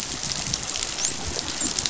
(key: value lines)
label: biophony, dolphin
recorder: SoundTrap 500